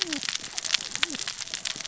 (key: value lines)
label: biophony, cascading saw
recorder: SoundTrap 600 or HydroMoth